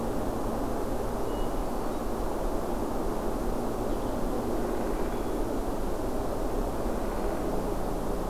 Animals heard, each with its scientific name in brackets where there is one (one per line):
Hermit Thrush (Catharus guttatus)